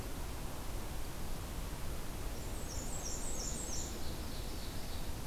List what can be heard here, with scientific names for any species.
Mniotilta varia, Seiurus aurocapilla